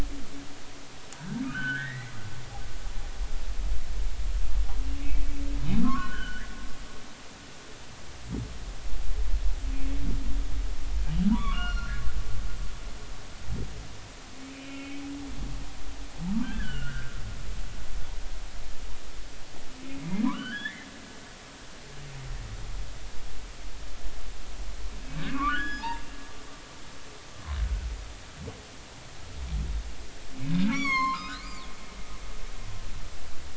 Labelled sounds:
1.1	2.1	humpback whale, 1.4 to 3.1 kHz
5.0	5.2	humpback whale, 2.1 to 2.4 kHz
6.0	6.4	humpback whale, 2.9 to 3.3 kHz
6.8	7.6	humpback whale, 0.99 to 2.0 kHz
11.3	12.0	humpback whale, 0.90 to 5.8 kHz
14.5	15.0	humpback whale, 2.1 to 3.1 kHz
16.4	17.1	humpback whale, 1.4 to 3.1 kHz
20.0	20.9	humpback whale, 0.93 to 3.6 kHz
25.3	26.0	humpback whale, 0.83 to 6.8 kHz
30.7	31.5	humpback whale, 0.90 to 6.9 kHz

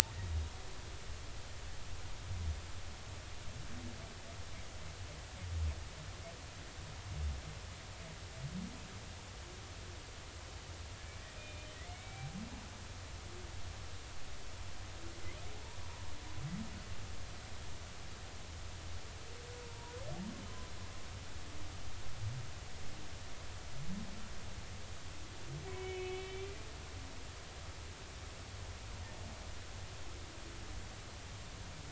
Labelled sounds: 0.2	0.5	humpback whale, 3.7 to 3.8 kHz
11.4	12.3	humpback whale, 1.9 to 2.5 kHz
19.6	20.0	humpback whale, 0.90 to 1.0 kHz
25.7	26.5	humpback whale, 2.1 to 3.5 kHz

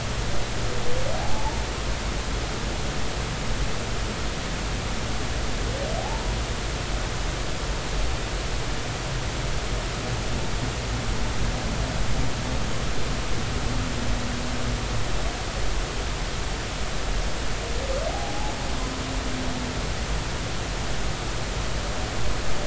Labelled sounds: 1.1	1.6	humpback whale, 0.80 to 0.96 kHz
18.1	18.5	humpback whale, 0.80 to 1.0 kHz

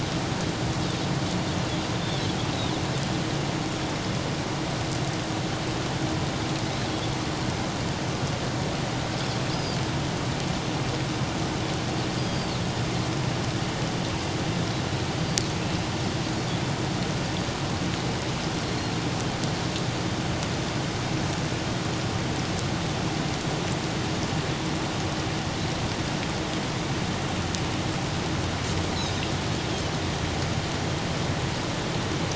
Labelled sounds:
9.5	9.8	Pacific white-sided dolphin, 4.6 to 5.1 kHz
12.3	12.6	Pacific white-sided dolphin, 4.3 to 4.9 kHz
18.7	19.0	Pacific white-sided dolphin, 4.1 to 4.4 kHz
28.9	29.2	Pacific white-sided dolphin, 3.7 to 6.7 kHz

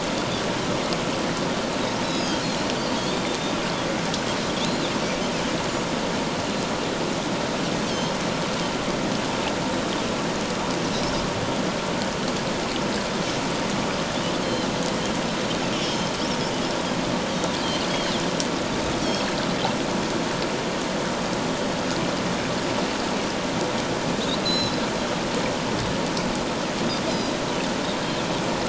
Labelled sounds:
2.1	2.4	Pacific white-sided dolphin, 4.8 to 6.7 kHz
3.0	3.3	Pacific white-sided dolphin, 3.2 to 3.7 kHz
7.9	8.1	Pacific white-sided dolphin, 3.0 to 3.3 kHz
14.4	14.7	Pacific white-sided dolphin, 2.9 to 4.3 kHz
15.8	16.1	Pacific white-sided dolphin, 3.1 to 6.5 kHz
17.9	18.2	Pacific white-sided dolphin, 2.9 to 3.3 kHz
19.0	19.3	Pacific white-sided dolphin, 4.2 to 4.5 kHz
24.4	24.8	Pacific white-sided dolphin, 3.8 to 5.4 kHz
27.1	27.3	Pacific white-sided dolphin, 4.8 to 5.1 kHz

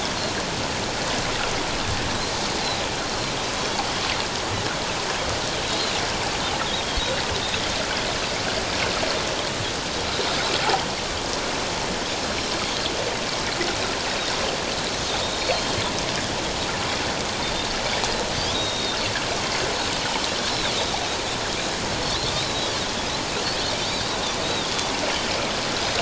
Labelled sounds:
15.2	15.5	Pacific white-sided dolphin, 3.6 to 3.8 kHz
18.5	19.0	Pacific white-sided dolphin, 3.6 to 3.9 kHz
20.5	20.7	Pacific white-sided dolphin, 3.2 to 4.2 kHz
22.3	22.7	Pacific white-sided dolphin, 3.6 to 4.1 kHz
23.8	24.9	Pacific white-sided dolphin, 3.2 to 4.0 kHz

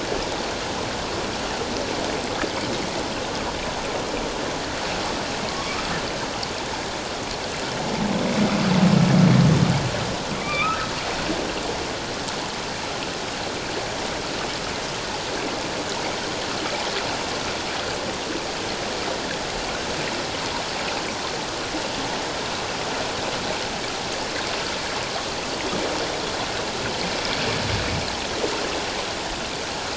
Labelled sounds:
5.5	5.9	humpback whale, 1.0 to 1.3 kHz
10.3	10.9	humpback whale, 1.1 to 2.7 kHz

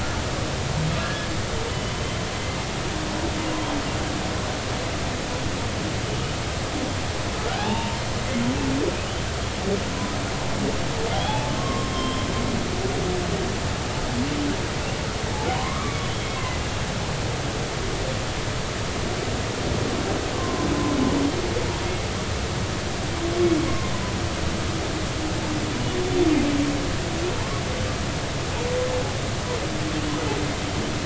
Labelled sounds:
1.0	2.2	humpback whale, 1.6 to 3.1 kHz
7.5	8.4	humpback whale, 0.80 to 2.9 kHz
11.1	12.3	humpback whale, 0.80 to 3.5 kHz
15.5	16.0	humpback whale, 0.93 to 1.3 kHz
20.3	20.7	humpback whale, 0.96 to 1.2 kHz
21.8	22.1	humpback whale, 2.1 to 2.2 kHz
23.7	23.9	humpback whale, 0.99 to 1.1 kHz

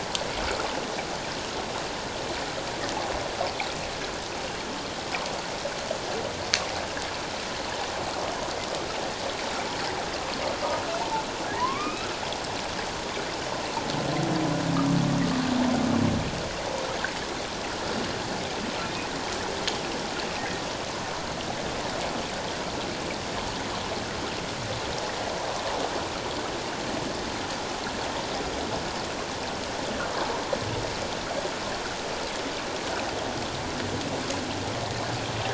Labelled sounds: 11.6	12.1	humpback whale, 0.88 to 2.7 kHz

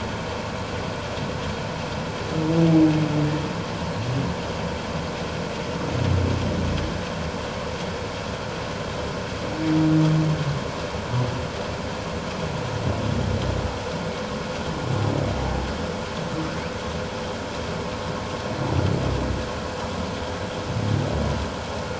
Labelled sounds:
15.4	15.7	humpback whale, 0.78 to 0.94 kHz

